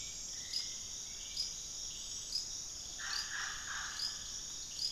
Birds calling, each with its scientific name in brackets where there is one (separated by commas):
Mealy Parrot (Amazona farinosa), Hauxwell's Thrush (Turdus hauxwelli)